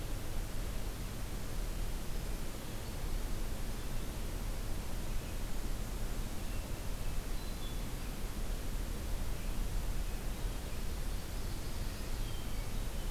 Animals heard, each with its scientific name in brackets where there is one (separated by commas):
Ovenbird (Seiurus aurocapilla), Red-eyed Vireo (Vireo olivaceus), Hermit Thrush (Catharus guttatus)